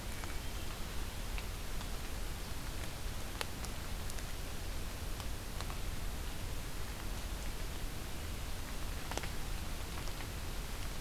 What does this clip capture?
Hermit Thrush